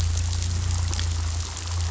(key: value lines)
label: anthrophony, boat engine
recorder: SoundTrap 500